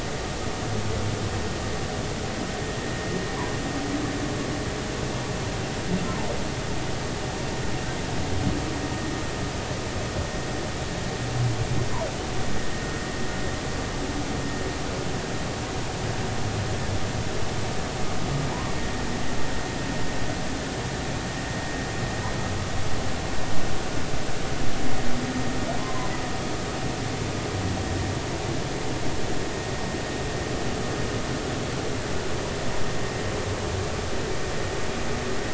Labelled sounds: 25.8	26.1	humpback whale, 0.96 to 1.1 kHz

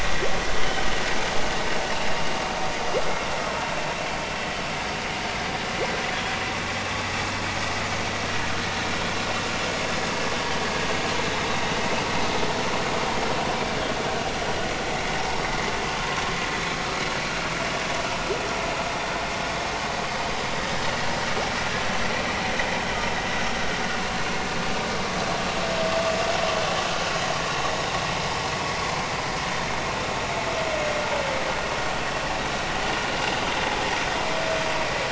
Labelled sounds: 11.5	11.7	humpback whale, 3.6 to 3.9 kHz

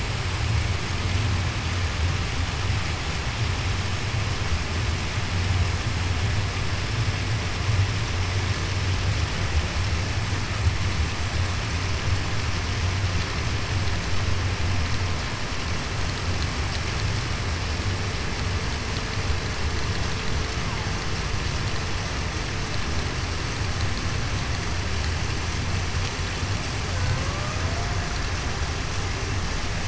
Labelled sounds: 27.2	27.6	killer whale, Bigg's (transient), 1.1 to 1.2 kHz

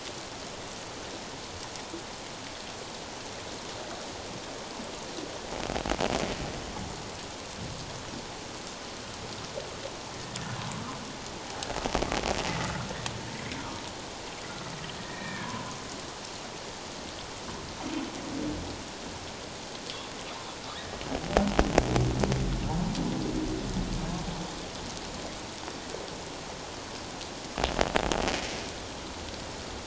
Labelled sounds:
15.0	15.5	humpback whale, 1.6 to 2.5 kHz
20.7	21.0	humpback whale, 1.6 to 2.0 kHz

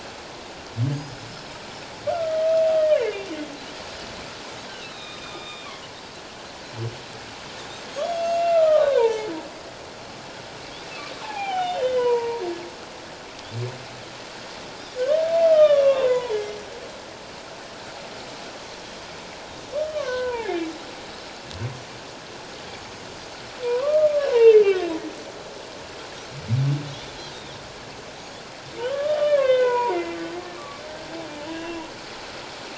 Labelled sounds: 1.0	1.6	Pacific white-sided dolphin, 4.8 to 5.2 kHz
2.8	3.2	humpback whale, 1.6 to 2.4 kHz
4.8	5.7	humpback whale, 1.1 to 4.0 kHz
7.9	8.3	Pacific white-sided dolphin, 3.2 to 3.4 kHz
7.9	9.3	humpback whale, 0.81 to 6.8 kHz
11.2	12.4	humpback whale, 0.78 to 3.7 kHz
15.4	16.7	humpback whale, 0.84 to 5.9 kHz
19.9	20.7	humpback whale, 0.78 to 2.5 kHz
23.6	24.9	humpback whale, 0.88 to 2.8 kHz
28.8	30.8	humpback whale, 0.81 to 3.8 kHz
31.5	31.8	humpback whale, 2.6 to 2.9 kHz

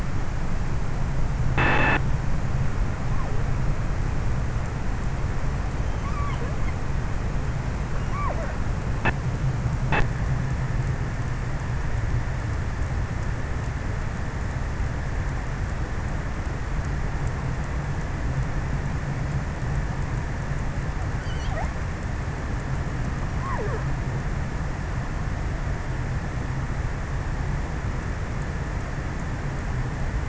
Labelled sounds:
20.7	22.0	killer whale, offshore, 0.34 to 3.6 kHz
23.1	24.9	killer whale, offshore, 0.30 to 2.3 kHz

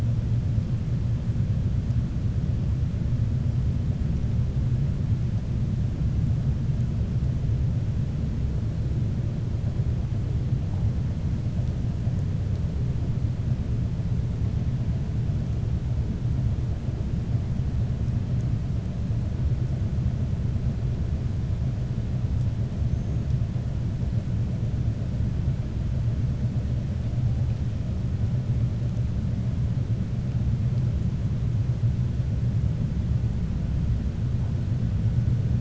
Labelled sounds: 22.8	23.2	killer whale, 6.2 to 6.6 kHz

